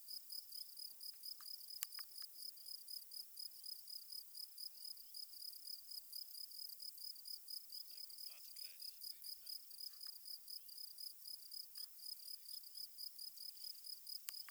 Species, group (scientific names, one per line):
Gryllus campestris
Orthoptera